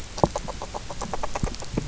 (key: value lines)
label: biophony, grazing
recorder: SoundTrap 300